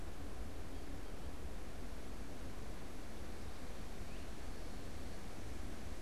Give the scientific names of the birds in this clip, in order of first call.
Myiarchus crinitus